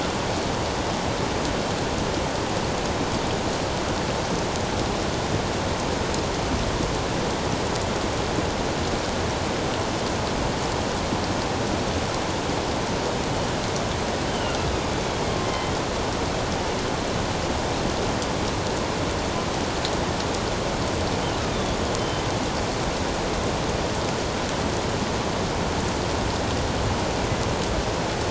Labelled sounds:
14.3	14.6	killer whale, northern resident, A clan, AA subclan, A04 pod, 2.8 to 3.1 kHz
15.5	15.8	killer whale, northern resident, A clan, AA subclan, A04 pod, 2.0 to 3.4 kHz
22.0	22.2	killer whale, northern resident, A clan, AA subclan, A04 pod, 3.0 to 3.1 kHz

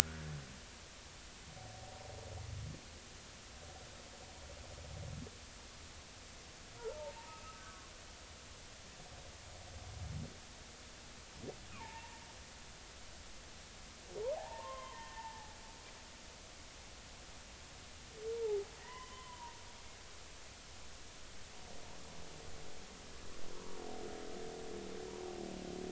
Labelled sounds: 0.0	0.4	humpback whale, 1.3 to 1.8 kHz
6.8	7.9	humpback whale, 0.83 to 1.6 kHz
11.7	12.2	humpback whale, 0.83 to 2.6 kHz
14.4	15.5	humpback whale, 0.80 to 3.2 kHz
18.8	19.6	humpback whale, 0.90 to 3.2 kHz
23.5	23.8	humpback whale, 0.90 to 1.2 kHz

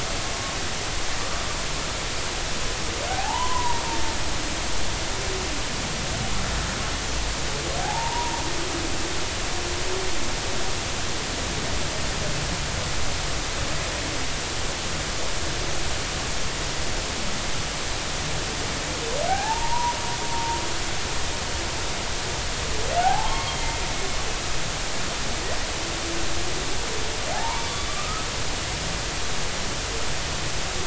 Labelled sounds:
3.1	3.8	humpback whale, 0.80 to 1.1 kHz
7.8	8.3	humpback whale, 0.80 to 1.0 kHz
19.3	19.9	humpback whale, 0.80 to 1.8 kHz
20.3	20.6	humpback whale, 0.86 to 1.0 kHz
23.0	23.5	humpback whale, 0.80 to 1.2 kHz
27.3	28.3	humpback whale, 0.80 to 3.5 kHz

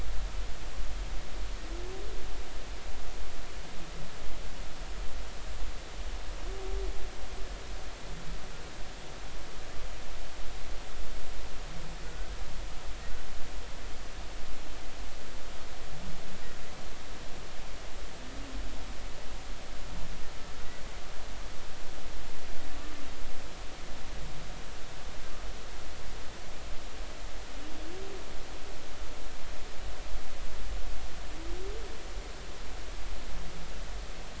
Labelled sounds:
12.0	12.3	humpback whale, 1.4 to 1.6 kHz

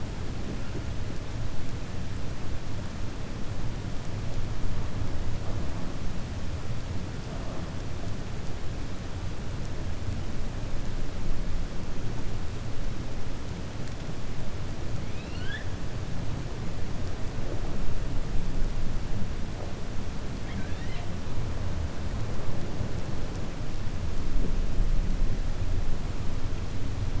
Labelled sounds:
15.0	15.7	killer whale, 1.5 to 4.9 kHz
20.3	21.1	killer whale, 1.5 to 4.2 kHz

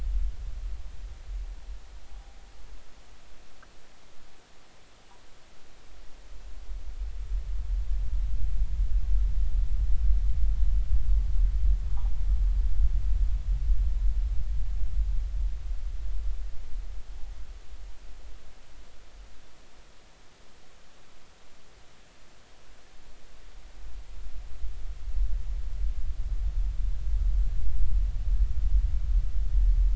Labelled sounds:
2.0	2.4	noise likely from the mooring, 0.80 to 0.86 kHz

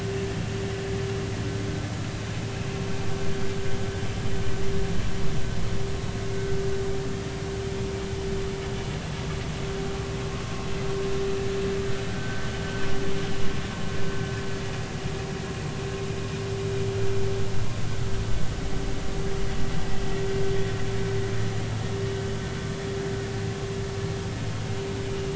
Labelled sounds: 12.1	12.4	vessel noise, 1.5 to 1.6 kHz

